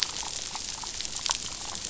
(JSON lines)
{"label": "biophony, damselfish", "recorder": "SoundTrap 500"}